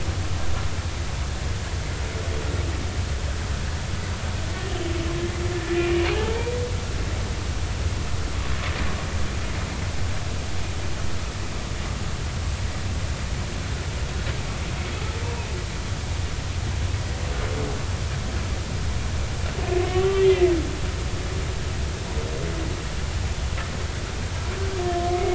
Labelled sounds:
5.7	6.5	humpback whale, 0.80 to 2.5 kHz
19.9	20.5	humpback whale, 1.1 to 3.2 kHz
25.0	25.3	humpback whale, 0.99 to 2.2 kHz

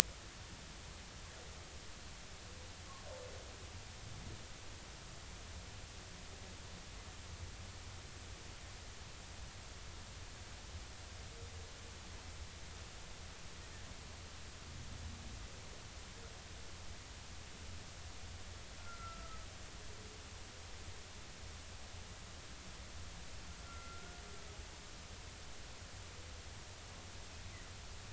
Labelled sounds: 18.8	19.4	humpback whale, 1.2 to 1.4 kHz
23.6	24.2	humpback whale, 1.3 to 1.5 kHz

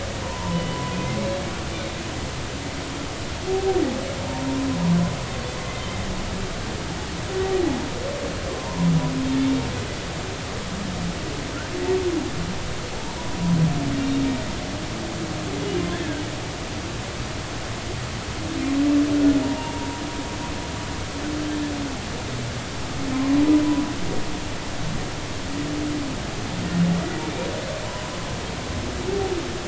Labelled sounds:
0.2	0.8	humpback whale, 0.90 to 3.0 kHz
5.6	5.8	humpback whale, 2.0 to 2.1 kHz
8.6	8.9	humpback whale, 0.86 to 1.1 kHz
15.9	16.2	humpback whale, 1.5 to 1.8 kHz
19.4	20.0	humpback whale, 0.83 to 0.99 kHz
23.1	23.4	humpback whale, 0.99 to 1.1 kHz
27.9	28.1	humpback whale, 0.90 to 1.1 kHz

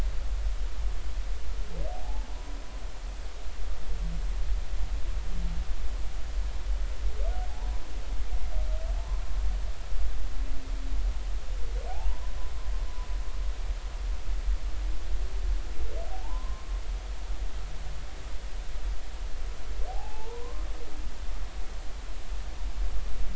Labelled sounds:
1.9	2.6	humpback whale, 0.80 to 1.0 kHz
11.9	12.3	humpback whale, 0.80 to 1.1 kHz
16.1	16.7	humpback whale, 0.80 to 1.2 kHz
19.9	20.7	humpback whale, 0.80 to 1.2 kHz

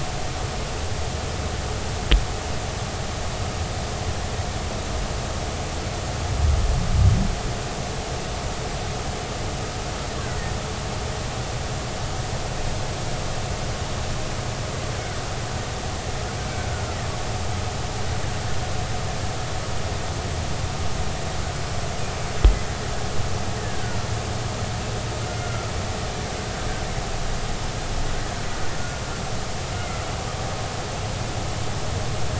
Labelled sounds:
16.4	16.7	killer whale, Bigg's (transient), 2.2 to 2.3 kHz
23.6	24.0	killer whale, Bigg's (transient), 1.4 to 1.9 kHz
25.3	25.7	killer whale, Bigg's (transient), 1.2 to 1.5 kHz
29.8	30.0	killer whale, Bigg's (transient), 2.0 to 2.2 kHz

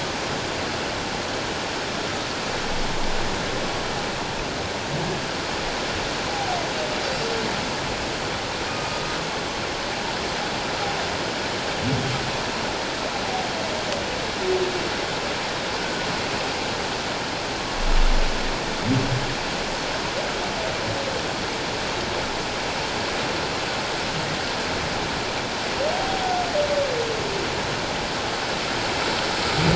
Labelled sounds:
6.3	6.6	humpback whale, 0.78 to 0.84 kHz
7.0	7.3	humpback whale, 4.6 to 4.8 kHz
8.7	8.9	humpback whale, 2.4 to 2.5 kHz
15.8	16.1	humpback whale, 1.4 to 1.6 kHz

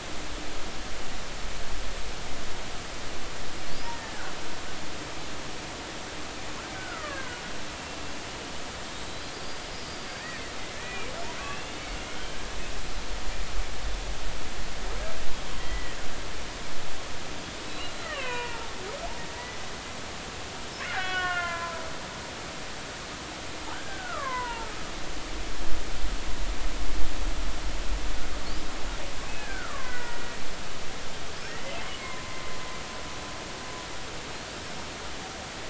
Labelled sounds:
3.9	4.3	killer whale, Bigg's (transient), 1.4 to 1.9 kHz
6.7	7.4	killer whale, Bigg's (transient), 0.96 to 2.0 kHz
9.3	10.4	killer whale, Bigg's (transient), 4.6 to 5.0 kHz
10.7	11.1	killer whale, Bigg's (transient), 1.7 to 2.5 kHz
11.4	11.9	killer whale, Bigg's (transient), 2.5 to 3.0 kHz
15.6	16.0	killer whale, Bigg's (transient), 1.8 to 2.0 kHz
17.6	18.7	killer whale, Bigg's (transient), 0.80 to 4.1 kHz
20.9	21.8	killer whale, Bigg's (transient), 0.96 to 3.4 kHz
23.7	24.7	killer whale, Bigg's (transient), 0.83 to 2.3 kHz
29.3	30.2	killer whale, Bigg's (transient), 0.96 to 2.6 kHz
31.5	32.4	killer whale, Bigg's (transient), 0.96 to 2.2 kHz

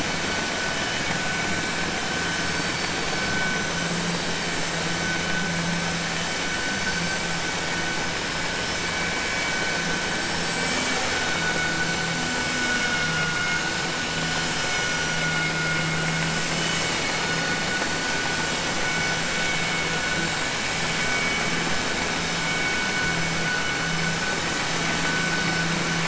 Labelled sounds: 12.5	13.6	vessel noise, 1.4 to 3.7 kHz

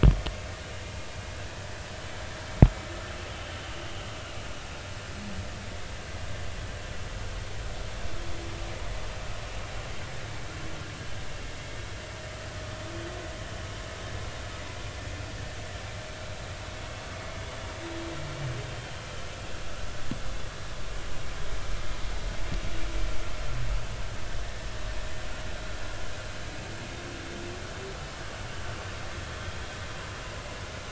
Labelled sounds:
24.4	24.7	vessel noise, 1.5 to 1.9 kHz
29.3	29.6	vessel noise, 3.2 to 3.5 kHz

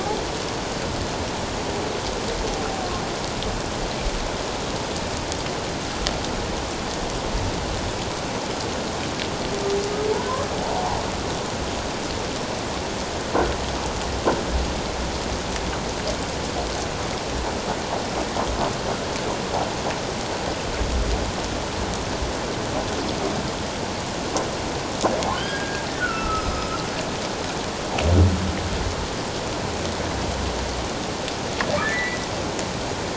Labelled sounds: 25.3	26.7	humpback whale, 1.2 to 5.3 kHz
31.8	32.2	humpback whale, 1.6 to 2.1 kHz

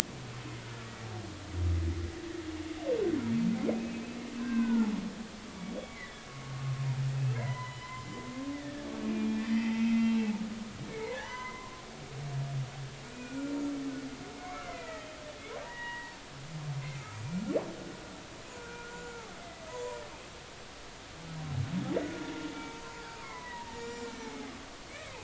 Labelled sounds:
3.7	4.9	humpback whale, 0.80 to 2.7 kHz
5.8	6.3	humpback whale, 1.6 to 2.3 kHz
7.3	8.1	humpback whale, 0.90 to 3.1 kHz
9.1	10.3	humpback whale, 1.8 to 3.2 kHz
10.9	11.8	humpback whale, 0.80 to 6.1 kHz
13.0	13.7	humpback whale, 1.3 to 7.1 kHz
14.3	15.1	humpback whale, 1.2 to 2.6 kHz
15.6	16.1	humpback whale, 0.86 to 3.0 kHz
18.6	20.0	humpback whale, 0.93 to 7.3 kHz
22.0	24.5	humpback whale, 0.80 to 7.2 kHz
24.9	25.2	humpback whale, 2.0 to 2.4 kHz

